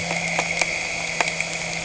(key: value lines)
label: anthrophony, boat engine
recorder: HydroMoth